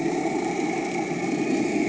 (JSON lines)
{"label": "anthrophony, boat engine", "recorder": "HydroMoth"}